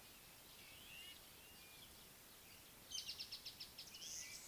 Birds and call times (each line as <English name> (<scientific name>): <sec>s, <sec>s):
Violet-backed Starling (Cinnyricinclus leucogaster): 1.0s
Speckled Mousebird (Colius striatus): 3.4s